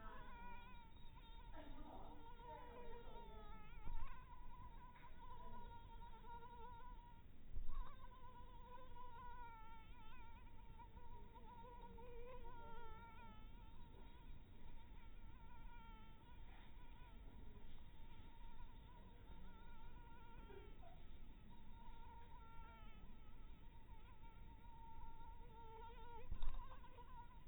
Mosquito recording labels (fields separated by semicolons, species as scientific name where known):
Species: mosquito; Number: one; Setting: cup